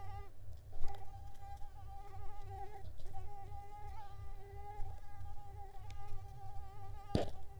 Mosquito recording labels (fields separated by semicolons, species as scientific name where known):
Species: Mansonia uniformis; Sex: female; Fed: unfed; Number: one; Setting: cup